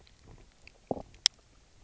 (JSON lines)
{"label": "biophony", "recorder": "SoundTrap 300"}